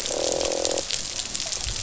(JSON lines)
{"label": "biophony, croak", "recorder": "SoundTrap 500"}